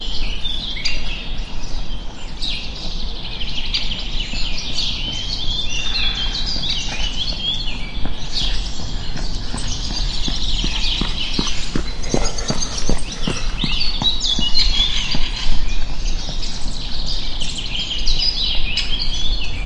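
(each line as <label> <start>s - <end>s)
Birds chirping. 0.0s - 19.7s
Wind blowing in the background. 0.1s - 7.2s
Jogging sounds. 9.4s - 16.7s
Running footsteps nearby. 11.8s - 13.6s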